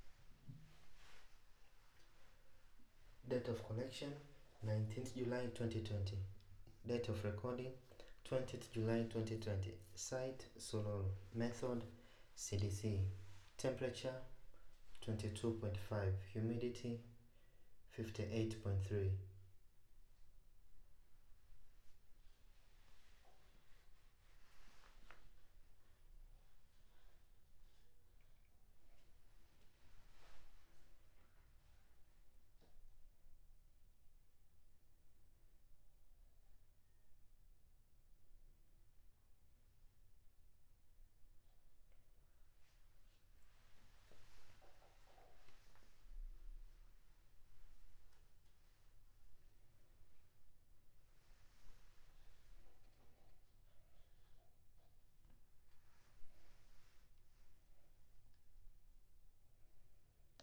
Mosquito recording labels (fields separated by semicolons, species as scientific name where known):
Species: no mosquito; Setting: cup